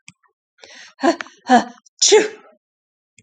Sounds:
Sneeze